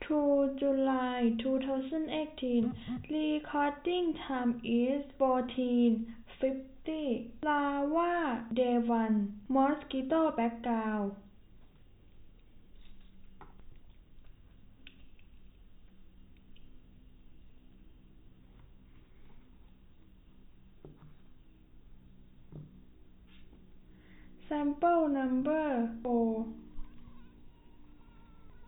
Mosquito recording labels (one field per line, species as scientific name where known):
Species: no mosquito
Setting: cup